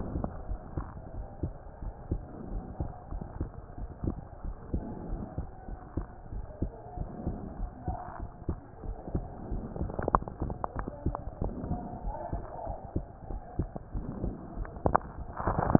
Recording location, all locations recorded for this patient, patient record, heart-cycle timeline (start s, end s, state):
pulmonary valve (PV)
aortic valve (AV)+pulmonary valve (PV)+tricuspid valve (TV)+mitral valve (MV)
#Age: Child
#Sex: Male
#Height: 131.0 cm
#Weight: 23.7 kg
#Pregnancy status: False
#Murmur: Absent
#Murmur locations: nan
#Most audible location: nan
#Systolic murmur timing: nan
#Systolic murmur shape: nan
#Systolic murmur grading: nan
#Systolic murmur pitch: nan
#Systolic murmur quality: nan
#Diastolic murmur timing: nan
#Diastolic murmur shape: nan
#Diastolic murmur grading: nan
#Diastolic murmur pitch: nan
#Diastolic murmur quality: nan
#Outcome: Abnormal
#Campaign: 2015 screening campaign
0.00	0.38	unannotated
0.38	0.46	diastole
0.46	0.60	S1
0.60	0.74	systole
0.74	0.86	S2
0.86	1.16	diastole
1.16	1.26	S1
1.26	1.40	systole
1.40	1.54	S2
1.54	1.82	diastole
1.82	1.92	S1
1.92	2.08	systole
2.08	2.22	S2
2.22	2.48	diastole
2.48	2.64	S1
2.64	2.78	systole
2.78	2.90	S2
2.90	3.10	diastole
3.10	3.22	S1
3.22	3.38	systole
3.38	3.52	S2
3.52	3.75	diastole
3.75	3.90	S1
3.90	4.04	systole
4.04	4.18	S2
4.18	4.42	diastole
4.42	4.56	S1
4.56	4.70	systole
4.70	4.84	S2
4.84	5.07	diastole
5.07	5.22	S1
5.22	5.36	systole
5.36	5.46	S2
5.46	5.66	diastole
5.66	5.78	S1
5.78	5.94	systole
5.94	6.08	S2
6.08	6.32	diastole
6.32	6.44	S1
6.44	6.60	systole
6.60	6.72	S2
6.72	6.93	diastole
6.93	7.08	S1
7.08	7.26	systole
7.26	7.40	S2
7.40	7.58	diastole
7.58	7.70	S1
7.70	7.86	systole
7.86	7.98	S2
7.98	8.20	diastole
8.20	8.30	S1
8.30	8.46	systole
8.46	8.58	S2
8.58	8.84	diastole
8.84	8.96	S1
8.96	9.12	systole
9.12	9.26	S2
9.26	9.50	diastole
9.50	15.79	unannotated